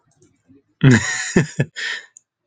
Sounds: Laughter